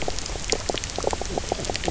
{"label": "biophony, knock croak", "recorder": "SoundTrap 300"}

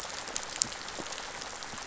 {"label": "biophony, rattle", "recorder": "SoundTrap 500"}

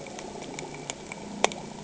{"label": "anthrophony, boat engine", "recorder": "HydroMoth"}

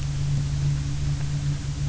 {"label": "anthrophony, boat engine", "recorder": "SoundTrap 300"}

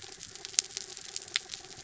{"label": "anthrophony, mechanical", "recorder": "SoundTrap 300"}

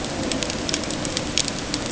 {"label": "ambient", "recorder": "HydroMoth"}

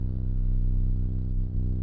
{"label": "anthrophony, boat engine", "recorder": "SoundTrap 300"}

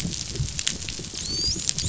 {"label": "biophony, dolphin", "recorder": "SoundTrap 500"}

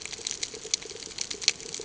{"label": "ambient", "recorder": "HydroMoth"}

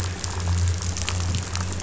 {"label": "anthrophony, boat engine", "recorder": "SoundTrap 500"}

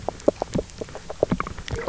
{"label": "biophony, knock croak", "recorder": "SoundTrap 300"}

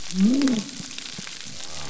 {"label": "biophony", "recorder": "SoundTrap 300"}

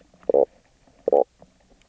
{"label": "biophony, knock croak", "recorder": "SoundTrap 300"}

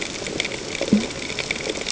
{"label": "ambient", "recorder": "HydroMoth"}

